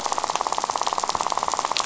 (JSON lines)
{"label": "biophony, rattle", "recorder": "SoundTrap 500"}